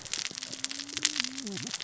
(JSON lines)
{"label": "biophony, cascading saw", "recorder": "SoundTrap 600 or HydroMoth"}